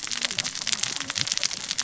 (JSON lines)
{"label": "biophony, cascading saw", "recorder": "SoundTrap 600 or HydroMoth"}